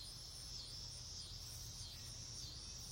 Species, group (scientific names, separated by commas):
Neotibicen pruinosus, Cicadidae